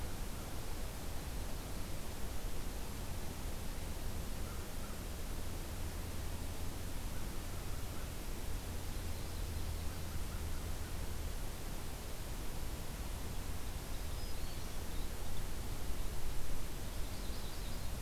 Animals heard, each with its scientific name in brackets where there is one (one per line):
Black-throated Green Warbler (Setophaga virens)
Yellow-rumped Warbler (Setophaga coronata)
American Crow (Corvus brachyrhynchos)